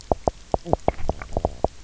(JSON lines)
{"label": "biophony, knock croak", "recorder": "SoundTrap 300"}